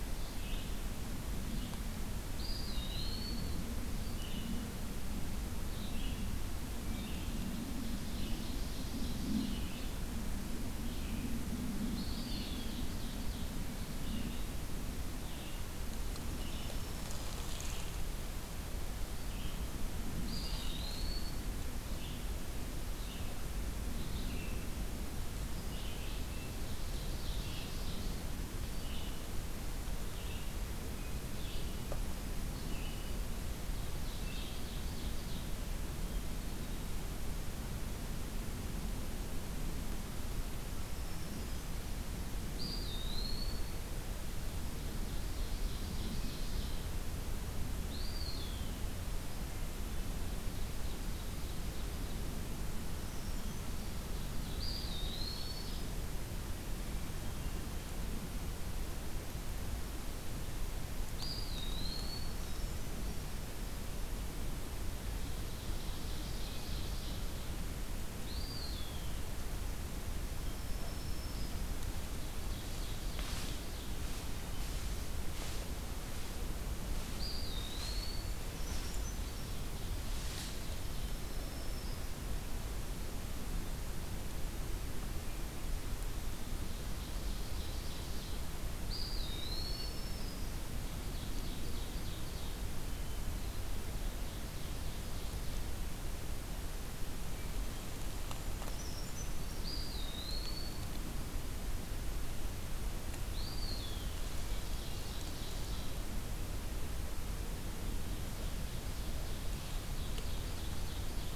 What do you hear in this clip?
Red-eyed Vireo, Eastern Wood-Pewee, Ovenbird, Black-throated Green Warbler, Brown Creeper